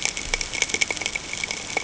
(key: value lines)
label: ambient
recorder: HydroMoth